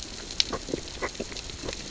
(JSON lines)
{"label": "biophony, grazing", "recorder": "SoundTrap 600 or HydroMoth"}